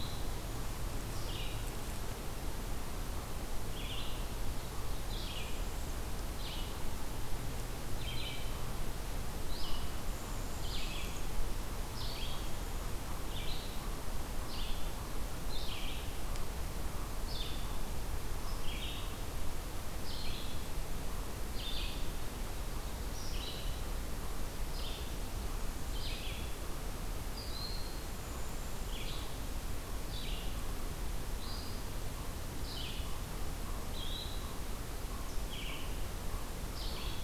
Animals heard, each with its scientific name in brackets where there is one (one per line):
Red-eyed Vireo (Vireo olivaceus)
Northern Parula (Setophaga americana)